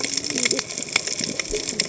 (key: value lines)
label: biophony, cascading saw
recorder: HydroMoth